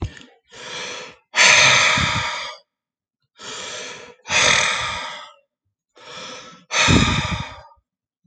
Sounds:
Sigh